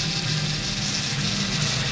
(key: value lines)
label: anthrophony, boat engine
recorder: SoundTrap 500